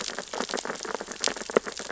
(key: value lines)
label: biophony, sea urchins (Echinidae)
recorder: SoundTrap 600 or HydroMoth